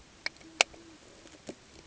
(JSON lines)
{"label": "ambient", "recorder": "HydroMoth"}